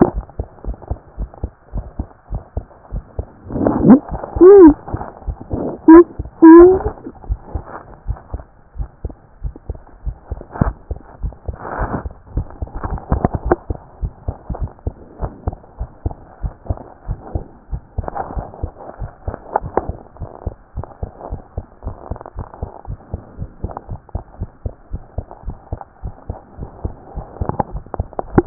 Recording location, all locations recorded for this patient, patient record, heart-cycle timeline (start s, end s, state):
pulmonary valve (PV)
aortic valve (AV)+pulmonary valve (PV)+tricuspid valve (TV)+mitral valve (MV)
#Age: Child
#Sex: Male
#Height: 113.0 cm
#Weight: 20.6 kg
#Pregnancy status: False
#Murmur: Present
#Murmur locations: aortic valve (AV)+mitral valve (MV)+pulmonary valve (PV)+tricuspid valve (TV)
#Most audible location: tricuspid valve (TV)
#Systolic murmur timing: Holosystolic
#Systolic murmur shape: Plateau
#Systolic murmur grading: II/VI
#Systolic murmur pitch: Low
#Systolic murmur quality: Harsh
#Diastolic murmur timing: nan
#Diastolic murmur shape: nan
#Diastolic murmur grading: nan
#Diastolic murmur pitch: nan
#Diastolic murmur quality: nan
#Outcome: Normal
#Campaign: 2014 screening campaign
0.00	20.20	unannotated
20.20	20.30	S1
20.30	20.46	systole
20.46	20.54	S2
20.54	20.76	diastole
20.76	20.86	S1
20.86	21.02	systole
21.02	21.12	S2
21.12	21.30	diastole
21.30	21.42	S1
21.42	21.56	systole
21.56	21.66	S2
21.66	21.84	diastole
21.84	21.96	S1
21.96	22.10	systole
22.10	22.20	S2
22.20	22.36	diastole
22.36	22.48	S1
22.48	22.62	systole
22.62	22.70	S2
22.70	22.88	diastole
22.88	22.98	S1
22.98	23.12	systole
23.12	23.22	S2
23.22	23.38	diastole
23.38	23.50	S1
23.50	23.64	systole
23.64	23.72	S2
23.72	23.90	diastole
23.90	24.00	S1
24.00	24.14	systole
24.14	24.24	S2
24.24	24.40	diastole
24.40	24.50	S1
24.50	24.64	systole
24.64	24.74	S2
24.74	24.92	diastole
24.92	25.02	S1
25.02	25.16	systole
25.16	25.26	S2
25.26	25.46	diastole
25.46	25.56	S1
25.56	25.72	systole
25.72	25.82	S2
25.82	26.04	diastole
26.04	26.14	S1
26.14	26.28	systole
26.28	26.38	S2
26.38	26.58	diastole
26.58	26.70	S1
26.70	26.84	systole
26.84	26.94	S2
26.94	27.16	diastole
27.16	28.46	unannotated